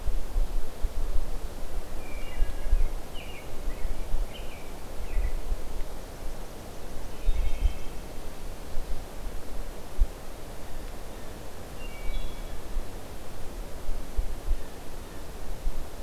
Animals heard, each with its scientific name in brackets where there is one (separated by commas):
American Robin (Turdus migratorius), Wood Thrush (Hylocichla mustelina)